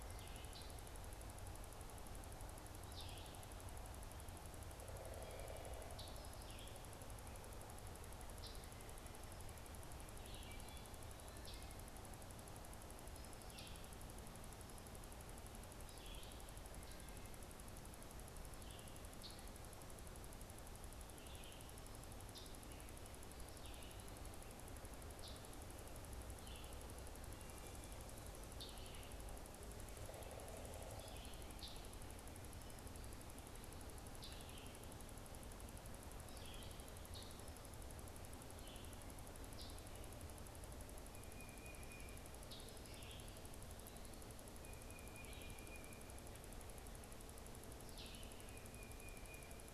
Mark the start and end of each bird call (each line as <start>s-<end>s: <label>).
0.0s-7.0s: Red-eyed Vireo (Vireo olivaceus)
5.9s-6.3s: Scarlet Tanager (Piranga olivacea)
8.4s-8.6s: Scarlet Tanager (Piranga olivacea)
10.2s-19.0s: Red-eyed Vireo (Vireo olivaceus)
11.4s-11.7s: Scarlet Tanager (Piranga olivacea)
13.5s-13.8s: Scarlet Tanager (Piranga olivacea)
19.2s-19.4s: Scarlet Tanager (Piranga olivacea)
22.3s-22.6s: Scarlet Tanager (Piranga olivacea)
23.6s-48.4s: Red-eyed Vireo (Vireo olivaceus)
25.2s-25.5s: Scarlet Tanager (Piranga olivacea)
28.5s-28.8s: Scarlet Tanager (Piranga olivacea)
29.9s-31.3s: Pileated Woodpecker (Dryocopus pileatus)
31.6s-31.8s: Scarlet Tanager (Piranga olivacea)
34.2s-34.4s: Scarlet Tanager (Piranga olivacea)
39.4s-39.9s: Scarlet Tanager (Piranga olivacea)
41.0s-42.2s: Tufted Titmouse (Baeolophus bicolor)
42.4s-43.1s: Scarlet Tanager (Piranga olivacea)
44.5s-46.1s: Tufted Titmouse (Baeolophus bicolor)
48.3s-49.7s: Tufted Titmouse (Baeolophus bicolor)